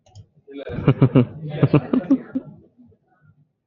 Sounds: Laughter